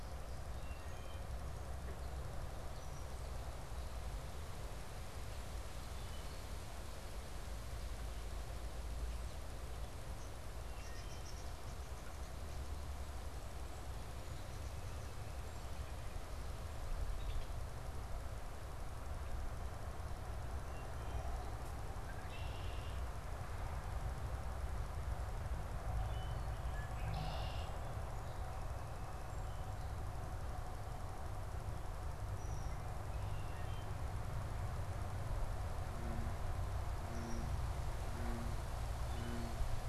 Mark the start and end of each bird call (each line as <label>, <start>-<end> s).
Wood Thrush (Hylocichla mustelina), 0.5-1.3 s
Wood Thrush (Hylocichla mustelina), 5.8-6.6 s
unidentified bird, 10.4-11.7 s
Wood Thrush (Hylocichla mustelina), 10.6-11.3 s
Red-winged Blackbird (Agelaius phoeniceus), 17.0-17.6 s
Red-winged Blackbird (Agelaius phoeniceus), 21.9-27.8 s
Wood Thrush (Hylocichla mustelina), 26.0-26.7 s
Red-winged Blackbird (Agelaius phoeniceus), 32.2-34.4 s
Red-winged Blackbird (Agelaius phoeniceus), 36.7-37.6 s
Wood Thrush (Hylocichla mustelina), 38.9-39.6 s